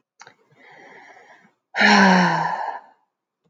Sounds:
Sigh